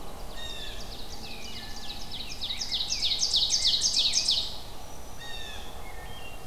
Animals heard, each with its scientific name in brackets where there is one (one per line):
Wood Thrush (Hylocichla mustelina)
Blue Jay (Cyanocitta cristata)
Black-throated Green Warbler (Setophaga virens)
Rose-breasted Grosbeak (Pheucticus ludovicianus)
Ovenbird (Seiurus aurocapilla)